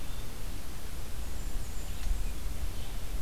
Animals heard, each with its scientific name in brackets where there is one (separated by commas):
Blackburnian Warbler (Setophaga fusca), Red-eyed Vireo (Vireo olivaceus)